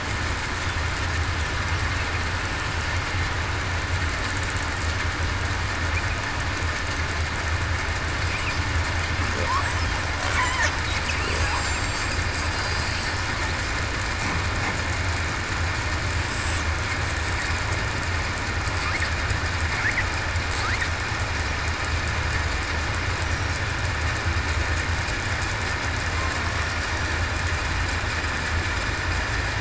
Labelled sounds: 11.6	12.1	killer whale, southern resident, 7.2 to 7.6 kHz
16.2	16.6	killer whale, southern resident, 7.9 to 8.0 kHz

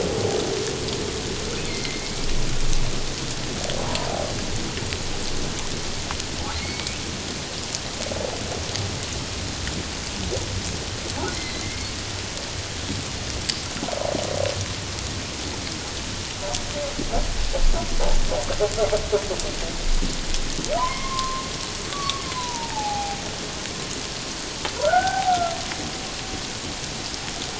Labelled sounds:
1.7	2.2	humpback whale, 2.0 to 2.4 kHz
3.8	4.1	humpback whale, 0.78 to 1.1 kHz
6.6	7.0	humpback whale, 2.0 to 2.3 kHz
11.3	11.9	humpback whale, 1.9 to 4.2 kHz
20.8	23.2	humpback whale, 0.78 to 2.2 kHz
24.8	25.5	humpback whale, 0.78 to 1.6 kHz

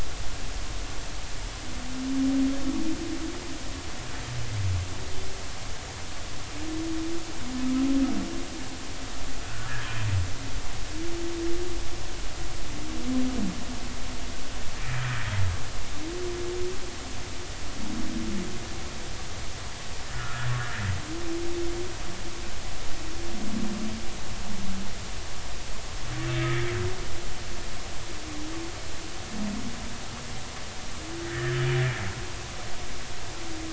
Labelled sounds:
20.1	20.5	humpback whale, 1.2 to 1.5 kHz
26.4	26.7	humpback whale, 1.5 to 2.0 kHz
31.2	31.7	humpback whale, 1.6 to 2.0 kHz

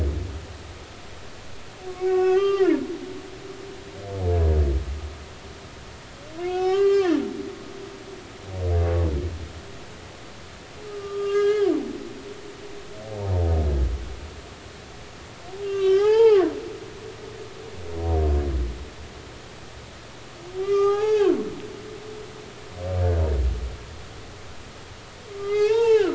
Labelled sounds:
2.0	3.4	humpback whale, 0.80 to 5.3 kHz
6.4	7.2	humpback whale, 0.80 to 4.5 kHz
10.9	11.7	humpback whale, 1.2 to 4.3 kHz
15.6	16.5	humpback whale, 0.80 to 3.4 kHz
20.6	21.4	humpback whale, 0.80 to 6.5 kHz
22.0	22.3	humpback whale, 4.6 to 4.8 kHz
25.3	26.1	humpback whale, 0.80 to 3.8 kHz

